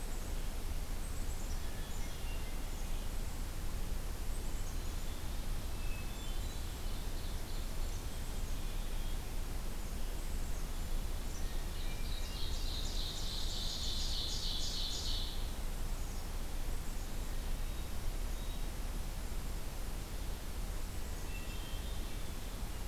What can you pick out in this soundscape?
Black-capped Chickadee, Hermit Thrush, Ovenbird